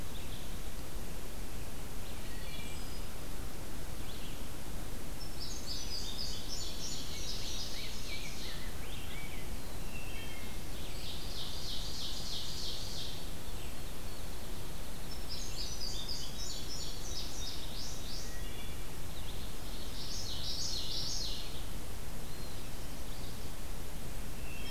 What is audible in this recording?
Red-eyed Vireo, Wood Thrush, Indigo Bunting, Ovenbird, Rose-breasted Grosbeak, Field Sparrow, Common Yellowthroat, Eastern Wood-Pewee